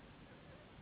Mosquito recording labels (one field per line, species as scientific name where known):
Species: Anopheles gambiae s.s.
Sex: female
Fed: unfed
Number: one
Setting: insect culture